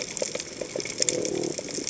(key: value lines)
label: biophony
recorder: HydroMoth